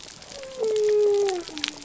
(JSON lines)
{"label": "biophony", "recorder": "SoundTrap 300"}